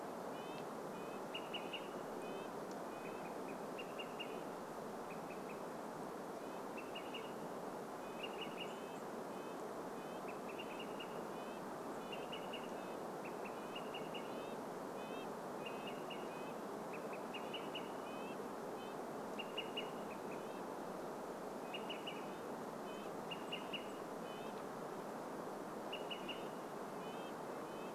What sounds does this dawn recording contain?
Red-breasted Nuthatch song, Olive-sided Flycatcher call, Chestnut-backed Chickadee call, unidentified bird chip note